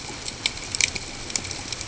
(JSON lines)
{"label": "ambient", "recorder": "HydroMoth"}